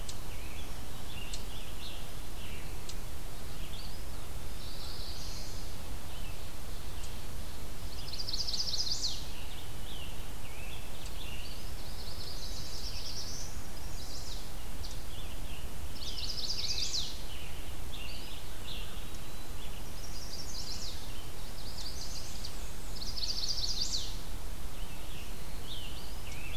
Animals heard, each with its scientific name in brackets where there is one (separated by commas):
Black-and-white Warbler (Mniotilta varia), Eastern Chipmunk (Tamias striatus), Scarlet Tanager (Piranga olivacea), Red-eyed Vireo (Vireo olivaceus), Chestnut-sided Warbler (Setophaga pensylvanica), Eastern Wood-Pewee (Contopus virens), Black-throated Blue Warbler (Setophaga caerulescens)